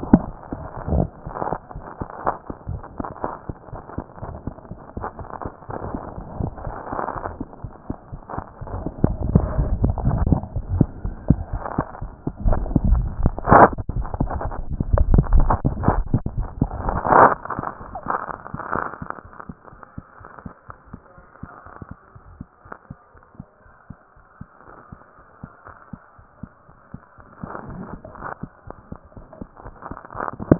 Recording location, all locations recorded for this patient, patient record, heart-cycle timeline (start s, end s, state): tricuspid valve (TV)
aortic valve (AV)+pulmonary valve (PV)+tricuspid valve (TV)+mitral valve (MV)
#Age: Child
#Sex: Male
#Height: 93.0 cm
#Weight: 15.4 kg
#Pregnancy status: False
#Murmur: Absent
#Murmur locations: nan
#Most audible location: nan
#Systolic murmur timing: nan
#Systolic murmur shape: nan
#Systolic murmur grading: nan
#Systolic murmur pitch: nan
#Systolic murmur quality: nan
#Diastolic murmur timing: nan
#Diastolic murmur shape: nan
#Diastolic murmur grading: nan
#Diastolic murmur pitch: nan
#Diastolic murmur quality: nan
#Outcome: Abnormal
#Campaign: 2014 screening campaign
0.00	22.03	unannotated
22.03	22.14	diastole
22.14	22.21	S1
22.21	22.38	systole
22.38	22.48	S2
22.48	22.64	diastole
22.64	22.72	S1
22.72	22.88	systole
22.88	22.96	S2
22.96	23.14	diastole
23.14	23.20	S1
23.20	23.38	systole
23.38	23.44	S2
23.44	23.66	diastole
23.66	23.73	S1
23.73	23.88	systole
23.88	23.96	S2
23.96	24.15	diastole
24.15	24.22	S1
24.22	24.38	systole
24.38	24.46	S2
24.46	24.65	diastole
24.65	30.59	unannotated